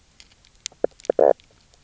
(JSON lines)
{"label": "biophony, knock croak", "recorder": "SoundTrap 300"}